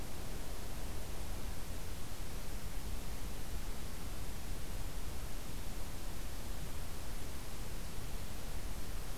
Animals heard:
forest ambience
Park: Acadia National Park